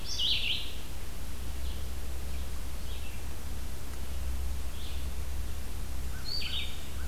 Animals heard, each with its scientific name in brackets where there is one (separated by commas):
American Crow (Corvus brachyrhynchos), Red-eyed Vireo (Vireo olivaceus), Blackburnian Warbler (Setophaga fusca)